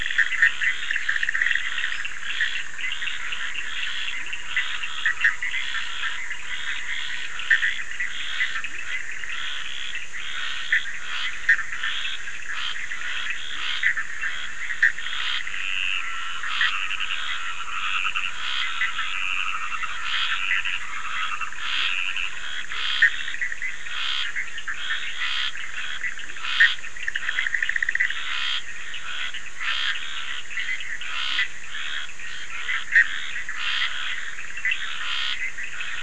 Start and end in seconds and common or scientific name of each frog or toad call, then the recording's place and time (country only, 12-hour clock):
0.0	5.6	Cochran's lime tree frog
0.0	36.0	Bischoff's tree frog
0.0	36.0	Scinax perereca
4.2	4.3	Leptodactylus latrans
13.5	13.7	Leptodactylus latrans
15.3	22.5	Dendropsophus nahdereri
15.6	22.5	yellow cururu toad
26.2	26.5	Leptodactylus latrans
Brazil, 11:15pm